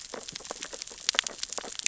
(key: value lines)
label: biophony, sea urchins (Echinidae)
recorder: SoundTrap 600 or HydroMoth